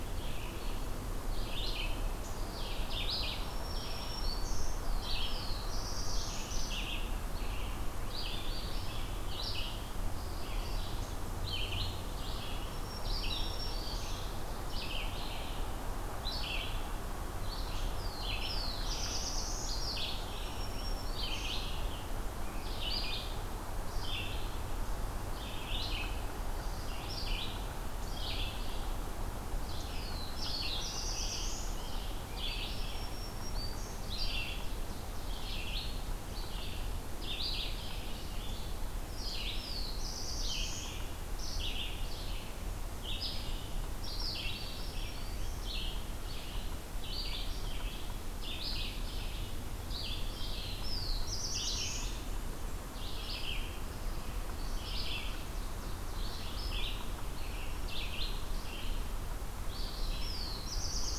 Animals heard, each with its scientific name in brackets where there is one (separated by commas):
Scarlet Tanager (Piranga olivacea), Ovenbird (Seiurus aurocapilla), Red-eyed Vireo (Vireo olivaceus), Black-throated Green Warbler (Setophaga virens), Black-throated Blue Warbler (Setophaga caerulescens)